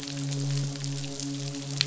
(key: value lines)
label: biophony, midshipman
recorder: SoundTrap 500